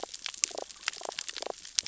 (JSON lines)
{"label": "biophony, damselfish", "recorder": "SoundTrap 600 or HydroMoth"}